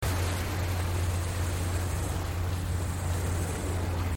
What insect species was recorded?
Haemopsalta rubea